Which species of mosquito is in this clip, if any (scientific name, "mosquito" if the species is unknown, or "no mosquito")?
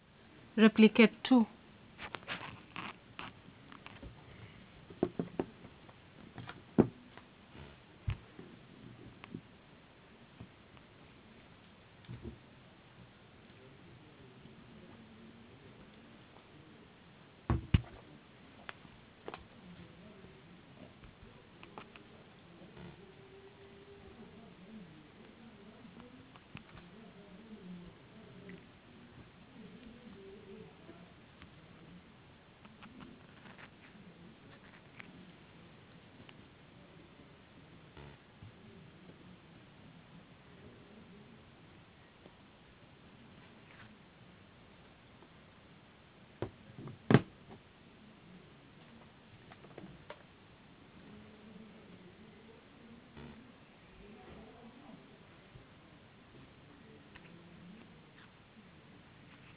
no mosquito